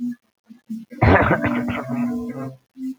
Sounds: Throat clearing